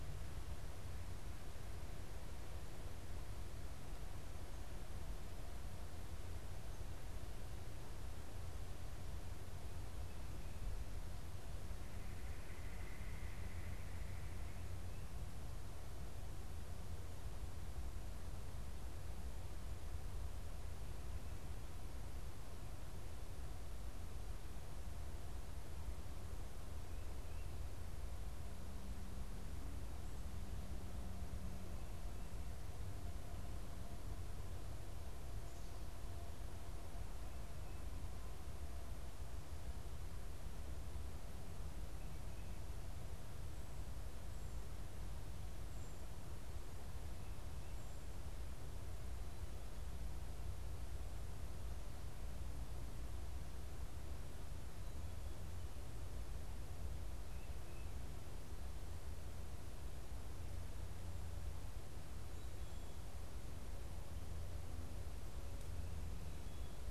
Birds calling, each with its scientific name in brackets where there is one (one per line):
Red-bellied Woodpecker (Melanerpes carolinus)